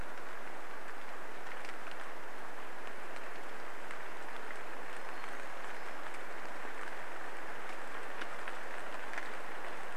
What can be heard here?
rain, warbler song